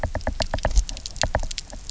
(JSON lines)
{"label": "biophony, knock", "recorder": "SoundTrap 300"}